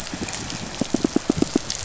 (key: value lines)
label: biophony, pulse
recorder: SoundTrap 500